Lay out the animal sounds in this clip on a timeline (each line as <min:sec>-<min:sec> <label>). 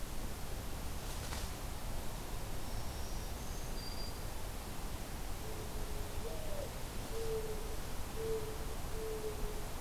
0:02.3-0:04.3 Black-throated Green Warbler (Setophaga virens)
0:05.0-0:09.8 Mourning Dove (Zenaida macroura)